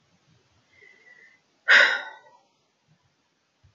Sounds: Sigh